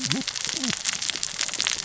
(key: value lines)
label: biophony, cascading saw
recorder: SoundTrap 600 or HydroMoth